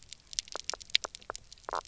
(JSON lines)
{"label": "biophony, knock croak", "recorder": "SoundTrap 300"}